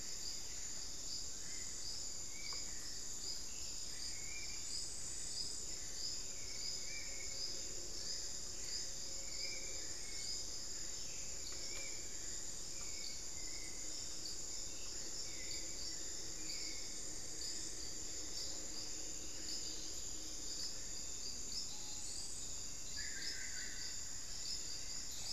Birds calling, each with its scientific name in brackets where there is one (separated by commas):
Olivaceous Woodcreeper (Sittasomus griseicapillus), Spot-winged Antshrike (Pygiptila stellaris), Hauxwell's Thrush (Turdus hauxwelli), Screaming Piha (Lipaugus vociferans), White-rumped Sirystes (Sirystes albocinereus), Solitary Black Cacique (Cacicus solitarius)